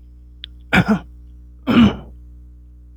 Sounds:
Throat clearing